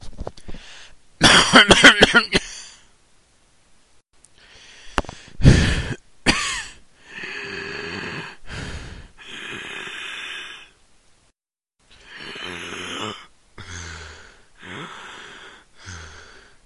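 0.0s An unhealthy man breathes quickly. 0.7s
1.2s A sick man coughs unhealthily. 2.8s
4.4s A sick man inhales. 5.4s
5.0s Microphone static blip. 5.0s
5.4s A sick man exhales quickly. 6.0s
6.2s A man coughs. 6.8s
7.0s A sick man inhales deeply and unhealthily. 8.4s
8.4s A sick man exhales deeply in an unhealthy manner. 9.1s
9.2s A sick man inhales deeply and unhealthily. 10.7s
11.8s A sick man inhales deeply and unhealthily. 13.3s
13.5s A sick man exhales heavily. 14.5s
14.6s A sick man inhales deeply and unhealthily. 15.6s
15.7s A sick man exhales heavily. 16.6s

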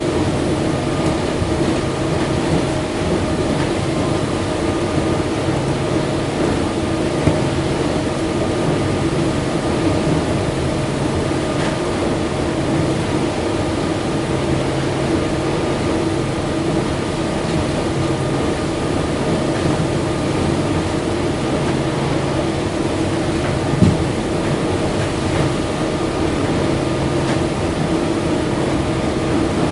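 0.0s A constant loud hum of an engine. 29.7s
2.3s A dull, very quiet, repetitive rumbling in the distance. 5.3s
23.6s A dull, very quiet, repetitive rumbling in the distance. 29.7s

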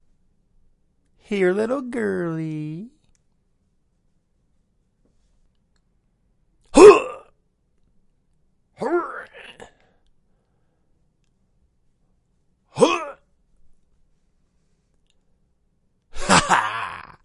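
1.3s A man is speaking melodically. 3.0s
6.7s A man makes a strangling noise. 7.3s
8.7s A man makes a strangling noise. 9.8s
12.7s A man makes a strangling noise. 13.2s
16.0s A triumphant laugh. 17.2s

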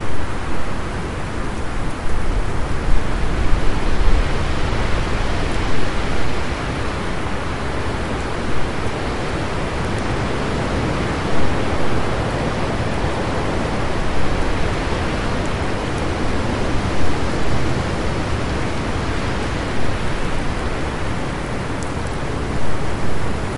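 0.1s Rain and wind blow through trees. 23.6s

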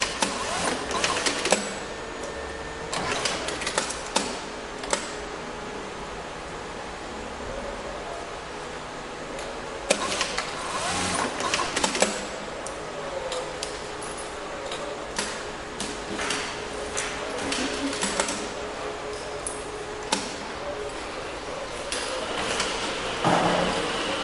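0.0s The sound of a knitting machine operating in a factory. 5.1s

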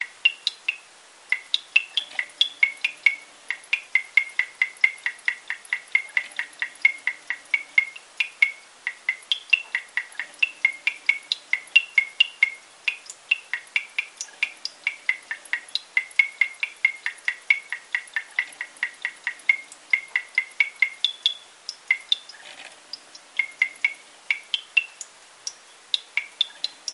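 0.1s Fast and repeated small water droplets dripping quietly into a sink. 26.9s

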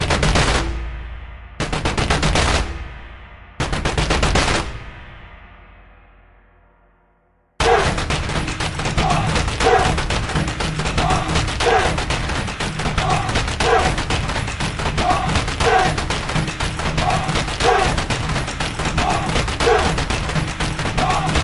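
0.0s Drums play as periodic chanting occurs. 21.4s

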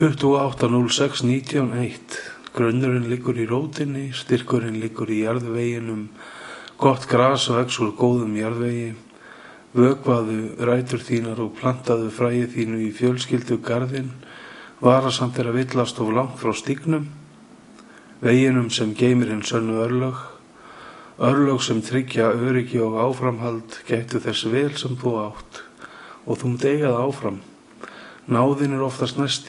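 0.0s Someone recites a poem in Icelandic in a somewhat ranting style with occasional mumbling. 29.5s

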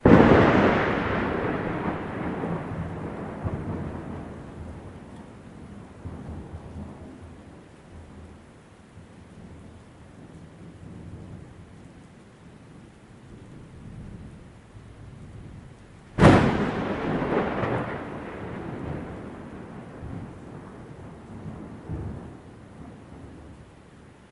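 0.0s Thunderstorm with lightning strikes. 4.3s
16.0s Thunder during a lightning storm. 24.3s

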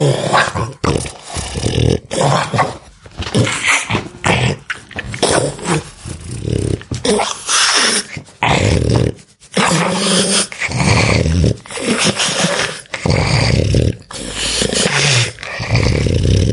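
0.0s A pug dog struggles to breathe while snoring and grunting loudly. 16.5s

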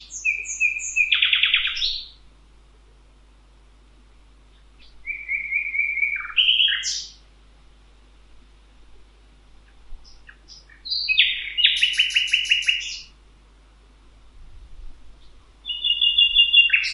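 0.0s A bird chirps in the distance with increasing volume. 1.1s
1.1s A bird chirps in a repeated pattern. 1.7s
1.7s A distant bird chirps and then stops. 2.1s
5.0s A bird chirps in the distance with increasing volume. 6.3s
6.3s A bird chirps repeatedly in the distance. 6.8s
6.8s A distant bird chirps and then stops. 7.2s
10.8s A nearby bird starts chirping. 11.4s
11.5s A bird nearby repeats a chirp pattern. 12.8s
12.8s A nearby bird stops chirping. 13.1s
15.6s A bird chirps with increasing volume. 16.9s

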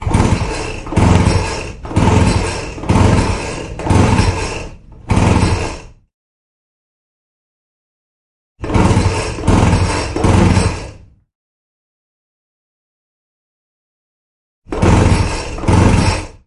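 0.0s A lawnmower sputters and howls repeatedly as it struggles to start. 6.0s
8.5s A lawnmower sputters and howls repeatedly as it struggles to start. 11.0s
14.6s A lawnmower sputters and howls repeatedly as it struggles to start. 16.4s

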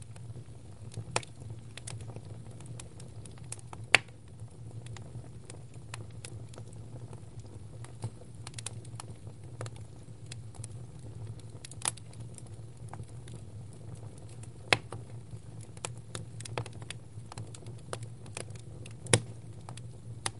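0.0s Wood crackling in a fire. 20.4s

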